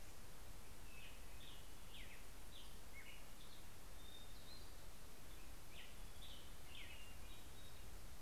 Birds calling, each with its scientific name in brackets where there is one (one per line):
Hermit Thrush (Catharus guttatus)
Black-headed Grosbeak (Pheucticus melanocephalus)